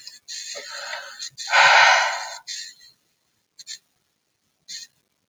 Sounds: Sigh